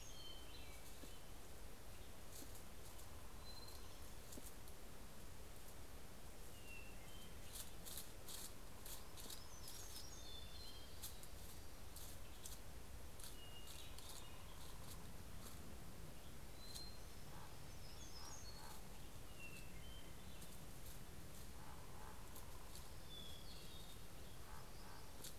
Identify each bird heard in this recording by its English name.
Hermit Warbler, Hermit Thrush, Western Tanager, Common Raven, Orange-crowned Warbler